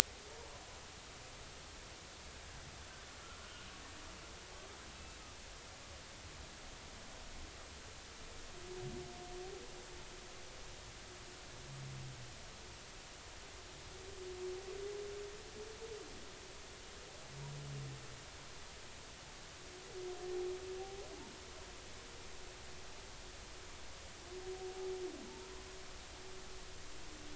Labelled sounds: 3.4	3.7	humpback whale, 1.4 to 1.5 kHz
25.2	25.5	humpback whale, 0.86 to 1.1 kHz

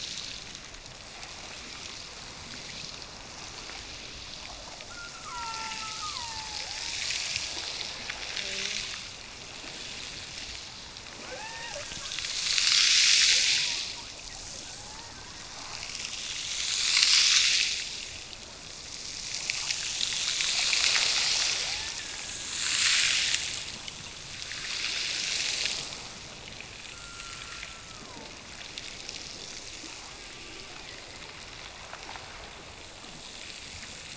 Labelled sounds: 4.9	6.8	killer whale, Bigg's (transient), Gulf of Alaska transient, 0.66 to 2.7 kHz
11.2	12.1	killer whale, Bigg's (transient), Gulf of Alaska transient, 0.39 to 3.0 kHz
21.6	22.5	killer whale, Bigg's (transient), Gulf of Alaska transient, 0.46 to 1.9 kHz
26.9	28.4	killer whale, Bigg's (transient), Gulf of Alaska transient, 0.75 to 1.5 kHz

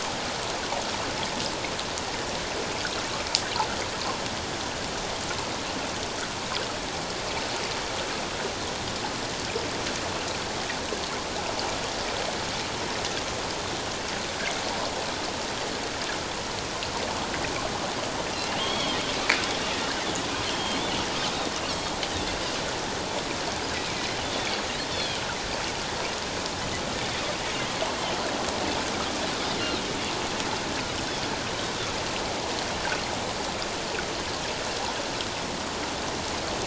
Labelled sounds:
18.3	19.0	Pacific white-sided dolphin, 2.7 to 4.5 kHz
20.5	20.8	Pacific white-sided dolphin, 3.0 to 3.3 kHz
21.7	21.9	Pacific white-sided dolphin, 4.2 to 4.7 kHz
24.2	25.2	Pacific white-sided dolphin, 3.0 to 3.7 kHz
32.8	33.0	Pacific white-sided dolphin, 1.4 to 1.8 kHz

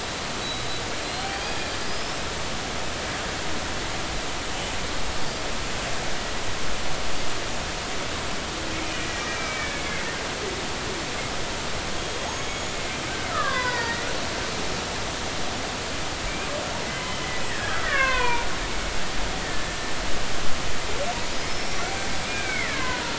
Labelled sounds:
0.4	2.2	killer whale, Bigg's (transient), 3.2 to 5.3 kHz
5.2	5.4	killer whale, Bigg's (transient), 4.4 to 4.9 kHz
8.8	10.1	killer whale, Bigg's (transient), 1.7 to 2.5 kHz
12.2	12.8	killer whale, Bigg's (transient), 6.4 to 6.9 kHz
13.3	14.1	killer whale, Bigg's (transient), 0.86 to 5.1 kHz
17.5	18.5	killer whale, Bigg's (transient), 0.90 to 2.9 kHz
19.4	19.7	killer whale, Bigg's (transient), 1.7 to 2.0 kHz
21.5	21.8	killer whale, Bigg's (transient), 5.2 to 5.7 kHz
22.2	23.0	killer whale, Bigg's (transient), 0.93 to 2.5 kHz

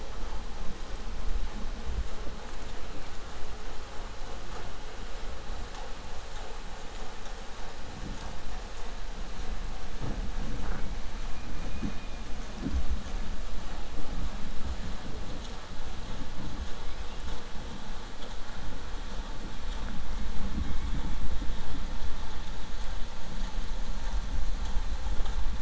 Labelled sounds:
11.6	12.1	killer whale, 2.0 to 3.2 kHz

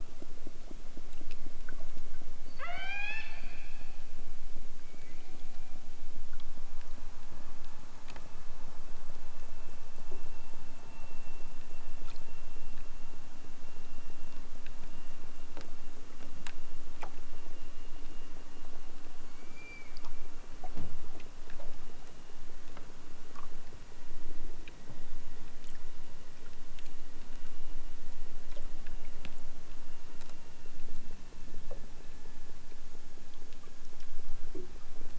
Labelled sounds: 2.3	3.5	killer whale, southern Alaska resident, 0.38 to 8.0 kHz
19.2	20.0	killer whale, southern Alaska resident, 1.6 to 5.6 kHz

